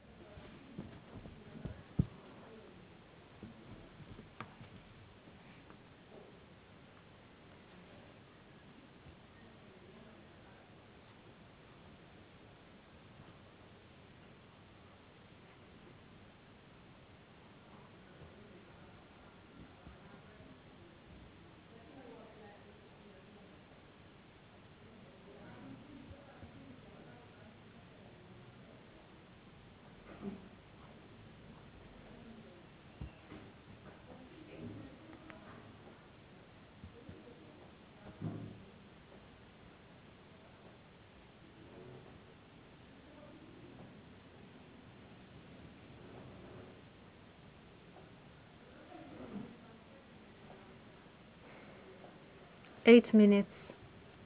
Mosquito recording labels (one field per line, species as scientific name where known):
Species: no mosquito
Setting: insect culture